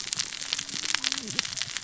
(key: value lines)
label: biophony, cascading saw
recorder: SoundTrap 600 or HydroMoth